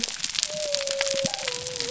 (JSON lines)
{"label": "biophony", "recorder": "SoundTrap 300"}